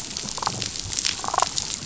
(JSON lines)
{"label": "biophony, damselfish", "recorder": "SoundTrap 500"}